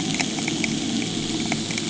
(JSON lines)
{"label": "anthrophony, boat engine", "recorder": "HydroMoth"}